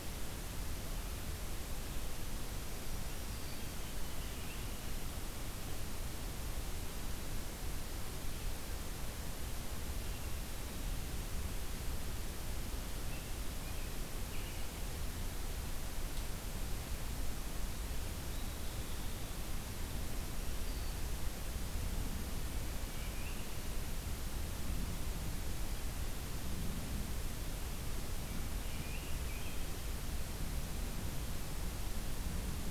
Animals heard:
American Robin (Turdus migratorius), Hermit Thrush (Catharus guttatus)

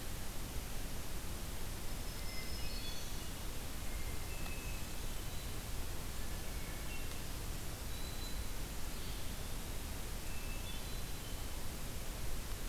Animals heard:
Eastern Wood-Pewee (Contopus virens), Black-throated Green Warbler (Setophaga virens), Hermit Thrush (Catharus guttatus)

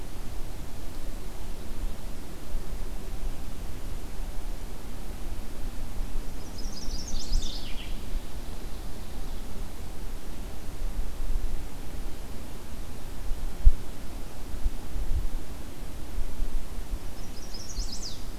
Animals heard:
Chestnut-sided Warbler (Setophaga pensylvanica)

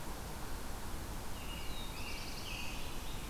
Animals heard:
Black-throated Blue Warbler (Setophaga caerulescens), American Robin (Turdus migratorius)

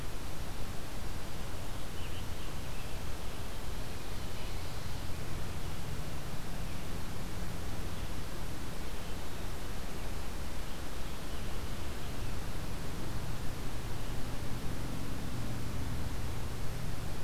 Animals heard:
Scarlet Tanager (Piranga olivacea), Ovenbird (Seiurus aurocapilla)

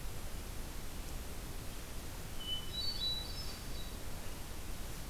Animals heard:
Hermit Thrush (Catharus guttatus)

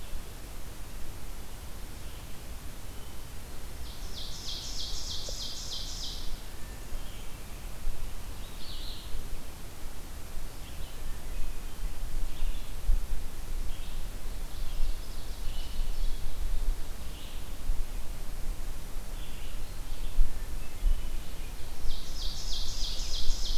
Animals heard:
Red-eyed Vireo (Vireo olivaceus), Ovenbird (Seiurus aurocapilla), Hermit Thrush (Catharus guttatus)

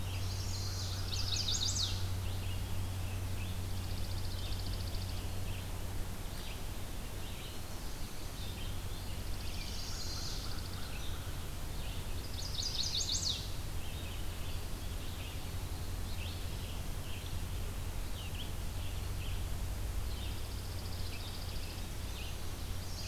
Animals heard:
Chipping Sparrow (Spizella passerina), Red-eyed Vireo (Vireo olivaceus), American Crow (Corvus brachyrhynchos), Chestnut-sided Warbler (Setophaga pensylvanica)

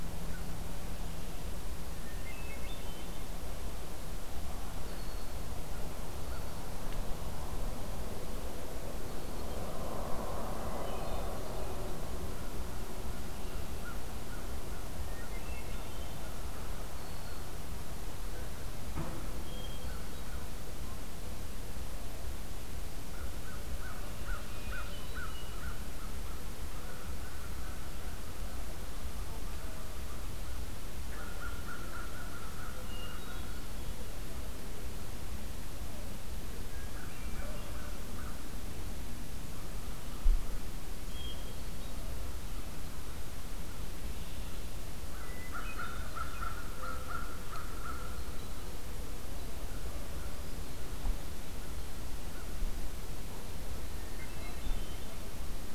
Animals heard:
American Crow (Corvus brachyrhynchos), Hermit Thrush (Catharus guttatus), Black-throated Green Warbler (Setophaga virens)

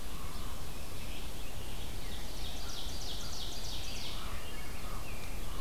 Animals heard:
Common Raven (Corvus corax), Rose-breasted Grosbeak (Pheucticus ludovicianus), Red-eyed Vireo (Vireo olivaceus), American Crow (Corvus brachyrhynchos), Ovenbird (Seiurus aurocapilla)

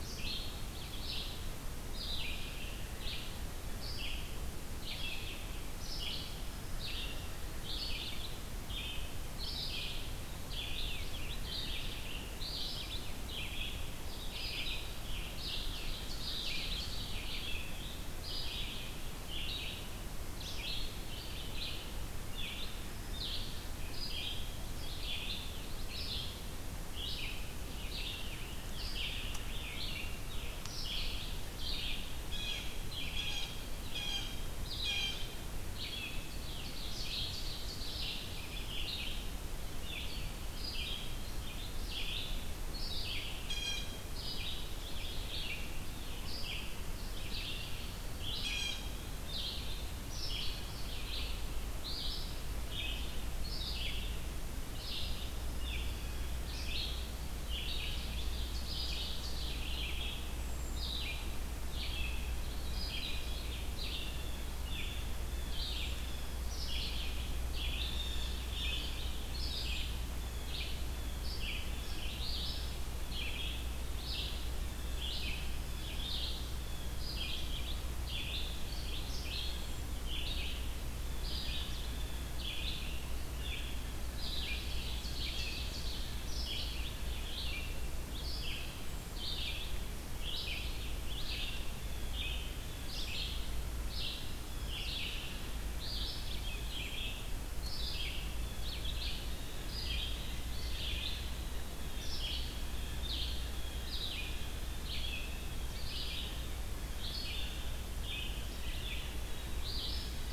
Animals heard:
unidentified call, Blue Jay (Cyanocitta cristata), Ovenbird (Seiurus aurocapilla), Black-throated Green Warbler (Setophaga virens), Red-eyed Vireo (Vireo olivaceus)

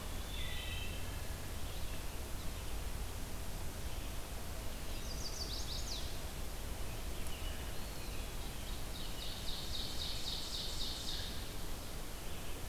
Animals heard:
Ovenbird (Seiurus aurocapilla), Eastern Wood-Pewee (Contopus virens), Chestnut-sided Warbler (Setophaga pensylvanica)

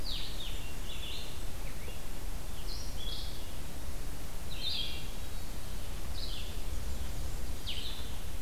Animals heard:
Hermit Thrush (Catharus guttatus), Blue-headed Vireo (Vireo solitarius), Red-eyed Vireo (Vireo olivaceus), Blackburnian Warbler (Setophaga fusca)

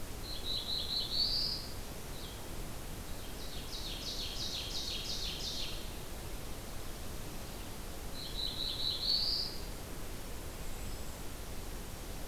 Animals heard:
Ovenbird (Seiurus aurocapilla), Black-throated Blue Warbler (Setophaga caerulescens)

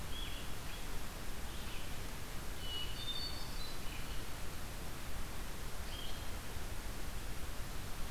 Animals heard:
Blue-headed Vireo (Vireo solitarius), Hermit Thrush (Catharus guttatus), Red-eyed Vireo (Vireo olivaceus)

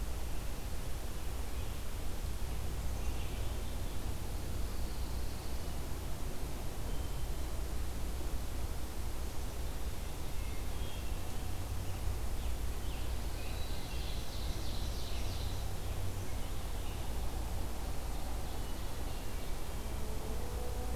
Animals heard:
Hermit Thrush (Catharus guttatus), Ovenbird (Seiurus aurocapilla), Black-capped Chickadee (Poecile atricapillus), Pine Warbler (Setophaga pinus), Scarlet Tanager (Piranga olivacea)

